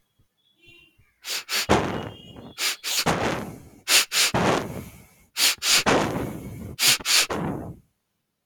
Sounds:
Sniff